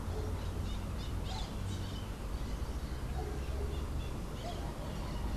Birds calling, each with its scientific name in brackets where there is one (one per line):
Crimson-fronted Parakeet (Psittacara finschi)